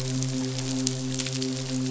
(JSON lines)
{"label": "biophony, midshipman", "recorder": "SoundTrap 500"}